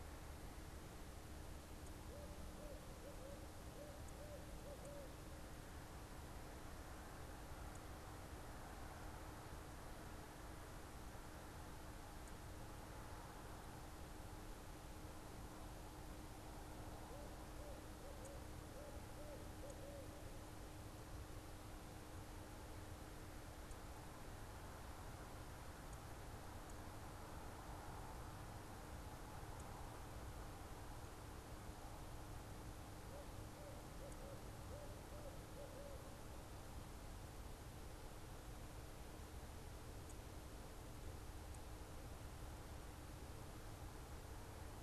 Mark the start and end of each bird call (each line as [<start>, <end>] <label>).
[1.98, 5.38] Barred Owl (Strix varia)
[16.98, 20.18] Barred Owl (Strix varia)
[32.88, 36.28] Barred Owl (Strix varia)